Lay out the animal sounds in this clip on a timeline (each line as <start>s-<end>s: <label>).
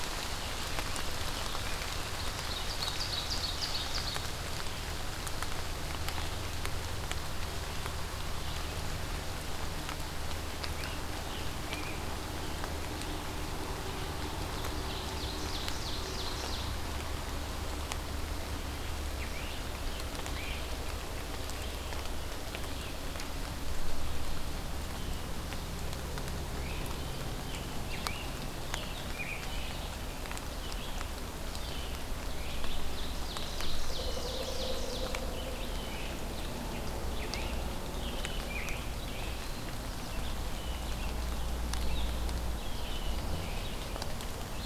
2.4s-4.3s: Ovenbird (Seiurus aurocapilla)
10.5s-12.4s: Scarlet Tanager (Piranga olivacea)
14.8s-16.6s: Ovenbird (Seiurus aurocapilla)
19.1s-20.8s: Scarlet Tanager (Piranga olivacea)
26.5s-29.7s: Scarlet Tanager (Piranga olivacea)
32.3s-35.2s: Ovenbird (Seiurus aurocapilla)
36.9s-38.9s: Scarlet Tanager (Piranga olivacea)
42.5s-43.3s: Blue Jay (Cyanocitta cristata)